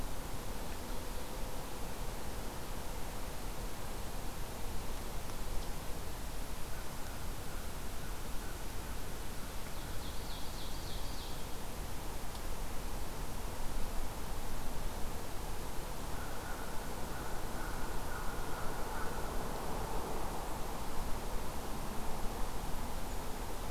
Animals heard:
Ovenbird (Seiurus aurocapilla), American Crow (Corvus brachyrhynchos)

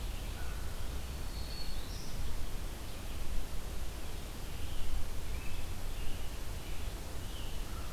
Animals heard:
American Robin (Turdus migratorius), American Crow (Corvus brachyrhynchos), Black-throated Green Warbler (Setophaga virens), Red-eyed Vireo (Vireo olivaceus)

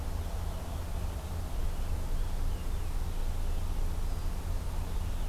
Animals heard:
Purple Finch (Haemorhous purpureus), Red-eyed Vireo (Vireo olivaceus)

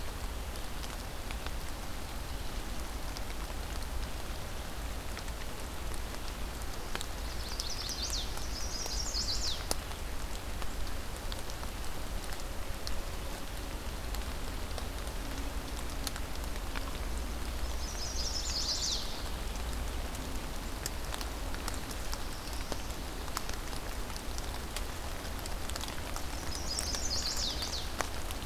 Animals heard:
Black-throated Blue Warbler (Setophaga caerulescens), Chestnut-sided Warbler (Setophaga pensylvanica)

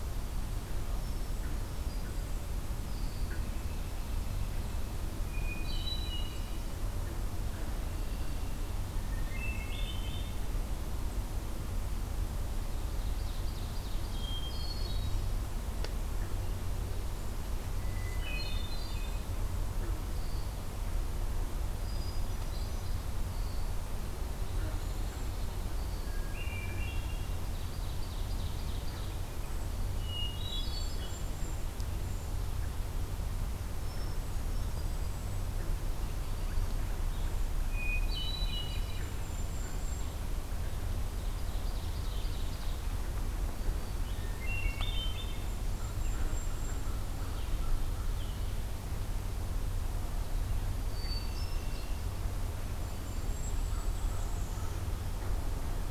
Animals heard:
Hermit Thrush (Catharus guttatus), Ovenbird (Seiurus aurocapilla), American Crow (Corvus brachyrhynchos), Pine Warbler (Setophaga pinus), Red-winged Blackbird (Agelaius phoeniceus), Golden-crowned Kinglet (Regulus satrapa), Northern Flicker (Colaptes auratus)

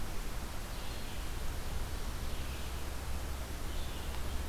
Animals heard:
Red-eyed Vireo (Vireo olivaceus)

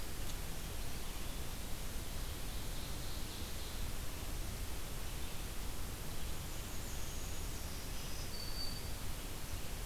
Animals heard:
Ovenbird (Seiurus aurocapilla), unidentified call, Black-throated Green Warbler (Setophaga virens)

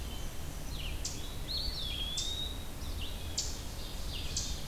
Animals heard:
Hermit Thrush (Catharus guttatus), Black-and-white Warbler (Mniotilta varia), Eastern Wood-Pewee (Contopus virens), Red-eyed Vireo (Vireo olivaceus), Ovenbird (Seiurus aurocapilla)

